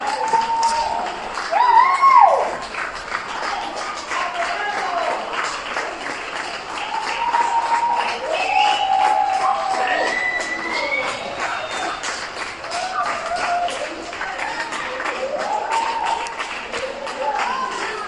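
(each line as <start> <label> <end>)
0.0 People applauding continuously. 18.1
1.3 People cheering loudly. 2.7
6.8 People shouting and cheering. 11.6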